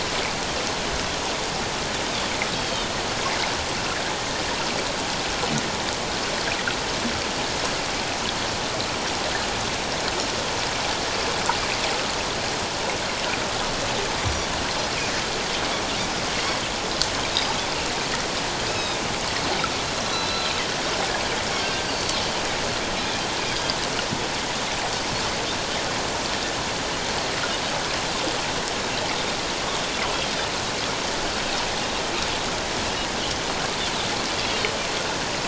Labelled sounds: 2.5	2.9	Pacific white-sided dolphin, 2.9 to 4.6 kHz
14.2	14.5	Pacific white-sided dolphin, 5.6 to 6.0 kHz
18.7	19.0	Pacific white-sided dolphin, 2.4 to 5.3 kHz
20.1	20.5	Pacific white-sided dolphin, 3.8 to 4.1 kHz
21.8	22.2	Pacific white-sided dolphin, 4.3 to 4.8 kHz
34.5	34.7	Pacific white-sided dolphin, 3.0 to 3.4 kHz

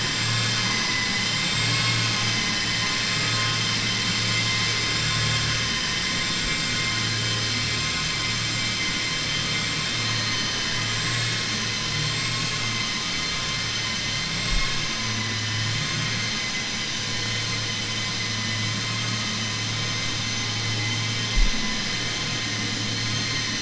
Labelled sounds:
0.3	2.1	vessel noise, 0.88 to 4.8 kHz

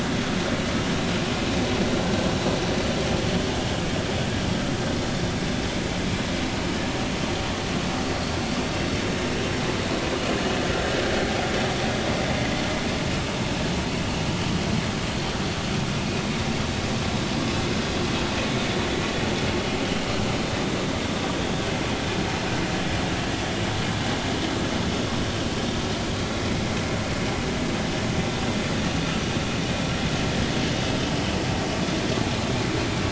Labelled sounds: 14.3	14.5	vessel noise, 2.9 to 3.1 kHz

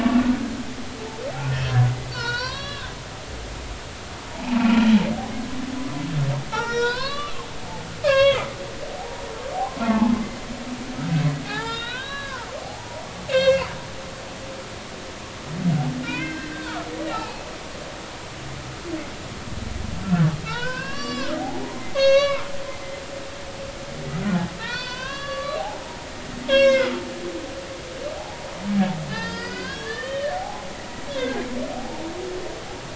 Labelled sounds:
2.1	2.9	humpback whale, 0.90 to 6.3 kHz
4.3	4.7	humpback whale, 0.80 to 1.0 kHz
6.5	7.4	humpback whale, 0.83 to 5.8 kHz
8.0	9.2	humpback whale, 0.80 to 5.6 kHz
9.8	10.2	humpback whale, 0.80 to 1.2 kHz
11.5	13.7	humpback whale, 0.80 to 6.0 kHz
16.0	17.5	humpback whale, 0.80 to 3.2 kHz
20.0	22.4	humpback whale, 0.80 to 7.5 kHz
24.6	25.8	humpback whale, 0.80 to 4.8 kHz
26.4	27.0	humpback whale, 0.99 to 6.1 kHz
28.2	30.7	humpback whale, 0.80 to 5.2 kHz
31.1	32.0	humpback whale, 0.80 to 1.7 kHz

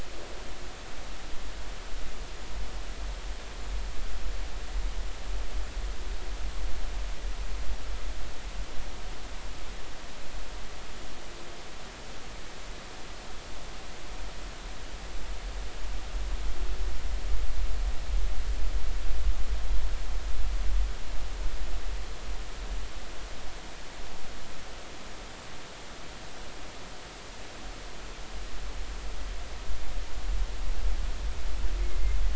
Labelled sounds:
31.8	32.2	killer whale, Bigg's (transient), 2.0 to 2.2 kHz

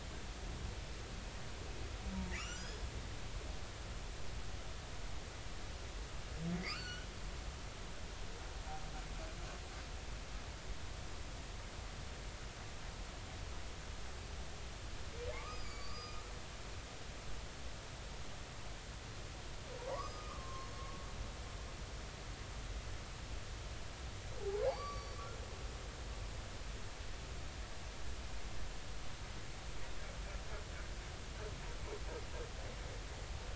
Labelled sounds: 2.3	2.8	humpback whale, 1.1 to 7.5 kHz
6.6	7.1	humpback whale, 1.1 to 4.6 kHz
15.3	16.2	humpback whale, 0.99 to 6.9 kHz
19.9	20.7	humpback whale, 0.83 to 5.2 kHz
24.4	25.2	humpback whale, 0.80 to 5.8 kHz

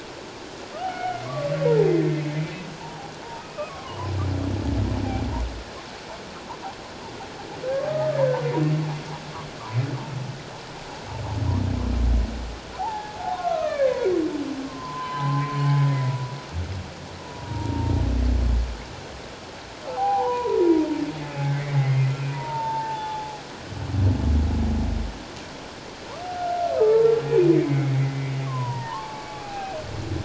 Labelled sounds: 0.8	1.9	humpback whale, 0.78 to 2.2 kHz
3.4	4.1	humpback whale, 0.88 to 2.6 kHz
7.9	8.4	humpback whale, 1.2 to 1.8 kHz
12.8	14.0	humpback whale, 0.78 to 2.6 kHz
14.6	16.4	humpback whale, 0.78 to 2.1 kHz
17.4	17.9	humpback whale, 0.84 to 0.97 kHz
19.9	20.9	humpback whale, 0.78 to 1.1 kHz
21.4	23.5	humpback whale, 0.78 to 3.7 kHz
26.3	29.8	humpback whale, 0.78 to 2.6 kHz

